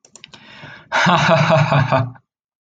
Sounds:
Laughter